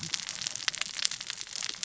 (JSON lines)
{"label": "biophony, cascading saw", "recorder": "SoundTrap 600 or HydroMoth"}